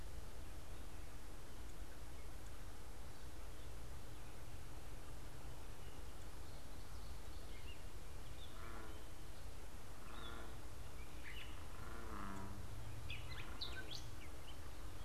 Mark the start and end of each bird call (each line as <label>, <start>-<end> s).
Gray Catbird (Dumetella carolinensis), 9.9-11.7 s
Gray Catbird (Dumetella carolinensis), 12.9-15.0 s